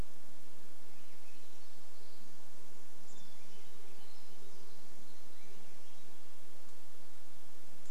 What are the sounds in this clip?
Swainson's Thrush song, insect buzz, Chestnut-backed Chickadee call, Hermit Thrush song, unidentified sound